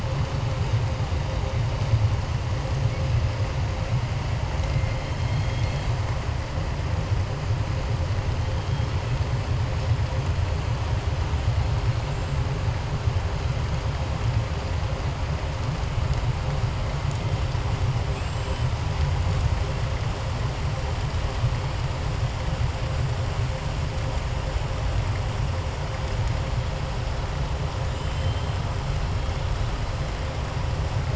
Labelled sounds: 5.2	5.9	killer whale, southern resident, 2.1 to 4.5 kHz
18.1	18.6	killer whale, southern resident, 7.5 to 7.8 kHz
28.0	28.5	killer whale, southern resident, 2.5 to 4.1 kHz

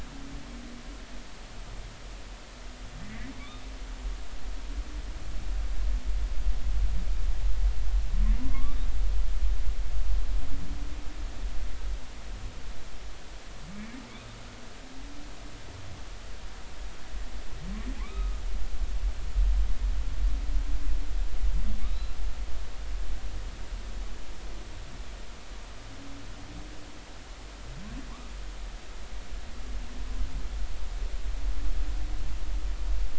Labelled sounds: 8.4	8.8	humpback whale, 0.96 to 2.4 kHz
13.7	14.0	humpback whale, 2.1 to 2.4 kHz
18.0	18.4	humpback whale, 0.96 to 2.6 kHz
21.8	22.1	humpback whale, 3.6 to 4.1 kHz

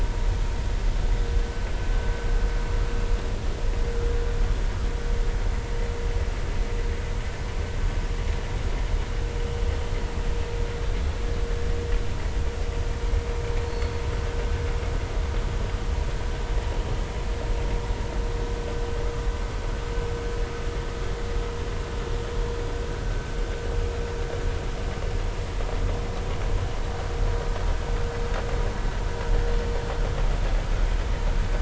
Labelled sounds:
13.7	14.0	killer whale, Bigg's (transient), 4.3 to 4.5 kHz

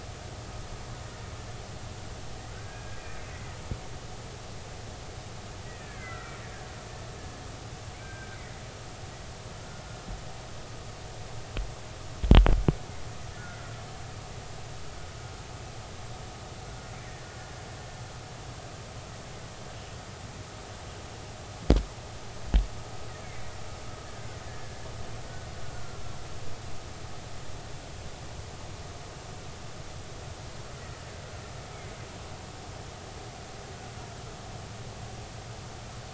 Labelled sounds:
2.6	3.0	killer whale, Bigg's (transient), 1.5 to 1.7 kHz
5.6	6.3	killer whale, Bigg's (transient), 1.3 to 2.2 kHz
8.0	8.6	killer whale, Bigg's (transient), 1.4 to 2.1 kHz
13.4	13.7	killer whale, Bigg's (transient), 1.3 to 1.5 kHz
24.5	24.8	killer whale, Bigg's (transient), 1.7 to 1.9 kHz
25.7	26.0	killer whale, Bigg's (transient), 1.3 to 1.6 kHz

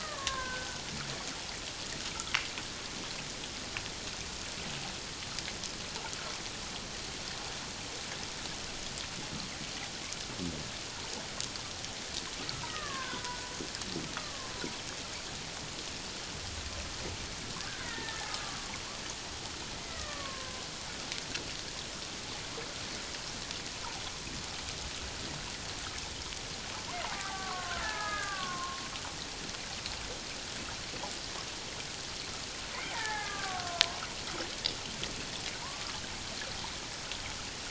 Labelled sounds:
0.0	0.8	killer whale, Bigg's (transient), 0.97 to 1.9 kHz
12.5	13.5	killer whale, Bigg's (transient), 0.91 to 2.0 kHz
14.1	14.5	killer whale, Bigg's (transient), 1.0 to 1.3 kHz
17.8	18.8	killer whale, Bigg's (transient), 1.0 to 2.1 kHz
19.8	20.6	killer whale, Bigg's (transient), 0.97 to 2.1 kHz
27.1	28.8	killer whale, Bigg's (transient), 0.78 to 1.8 kHz
32.9	34.0	killer whale, Bigg's (transient), 0.78 to 1.9 kHz
35.6	36.0	killer whale, Bigg's (transient), 0.88 to 1.4 kHz

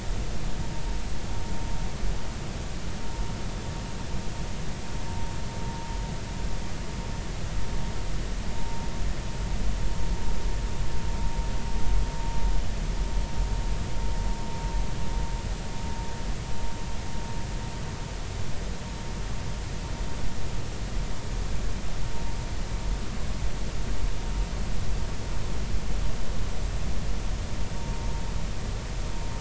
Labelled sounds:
8.6	8.8	vessel noise, 0.83 to 0.96 kHz

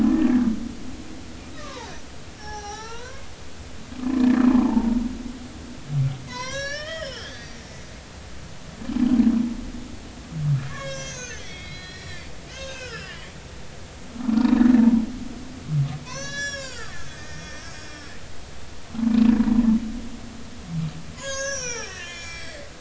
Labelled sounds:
1.5	1.9	humpback whale, 0.80 to 1.3 kHz
2.4	3.3	humpback whale, 0.80 to 6.1 kHz
4.1	5.0	humpback whale, 0.83 to 1.9 kHz
6.3	7.8	humpback whale, 0.93 to 7.0 kHz
10.7	13.2	humpback whale, 1.0 to 7.7 kHz
14.2	14.5	humpback whale, 1.2 to 1.5 kHz
16.0	17.7	humpback whale, 0.93 to 7.5 kHz
19.4	19.6	humpback whale, 0.90 to 1.1 kHz
21.1	22.6	humpback whale, 0.80 to 7.8 kHz

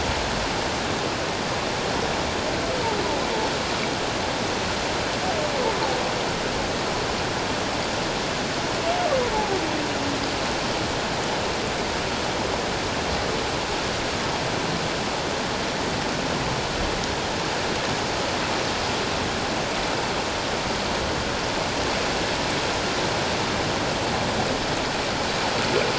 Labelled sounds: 9.3	9.6	humpback whale, 0.78 to 0.91 kHz

